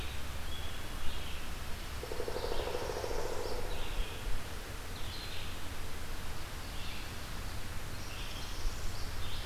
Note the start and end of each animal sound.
[0.00, 9.45] Red-eyed Vireo (Vireo olivaceus)
[1.42, 3.13] Pine Warbler (Setophaga pinus)
[1.92, 3.88] Pileated Woodpecker (Dryocopus pileatus)
[2.52, 3.68] Northern Parula (Setophaga americana)
[8.10, 9.21] Northern Parula (Setophaga americana)

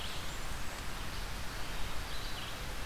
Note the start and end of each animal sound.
[0.00, 0.84] Blackburnian Warbler (Setophaga fusca)
[0.00, 2.86] Red-eyed Vireo (Vireo olivaceus)

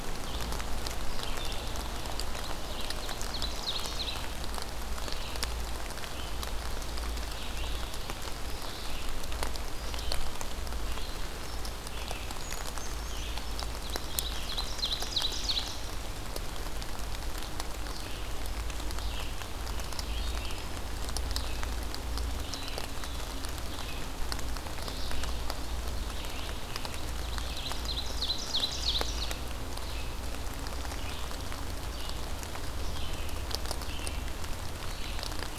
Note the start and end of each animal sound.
[0.00, 35.58] Red-eyed Vireo (Vireo olivaceus)
[2.47, 4.38] Ovenbird (Seiurus aurocapilla)
[12.18, 13.70] Brown Creeper (Certhia americana)
[13.83, 15.95] Ovenbird (Seiurus aurocapilla)
[27.40, 29.28] Ovenbird (Seiurus aurocapilla)

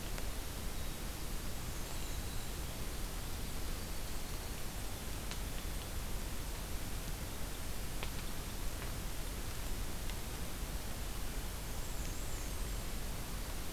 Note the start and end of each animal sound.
[0.00, 4.63] Winter Wren (Troglodytes hiemalis)
[1.65, 2.55] Black-and-white Warbler (Mniotilta varia)
[4.04, 6.10] White-throated Sparrow (Zonotrichia albicollis)
[11.58, 12.86] Black-and-white Warbler (Mniotilta varia)

